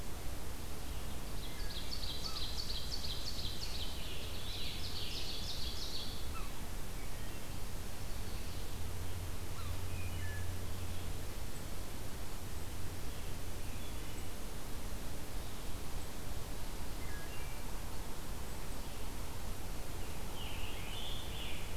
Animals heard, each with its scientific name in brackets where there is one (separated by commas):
Scarlet Tanager (Piranga olivacea), Yellow-bellied Sapsucker (Sphyrapicus varius), American Crow (Corvus brachyrhynchos), Wood Thrush (Hylocichla mustelina), Ovenbird (Seiurus aurocapilla)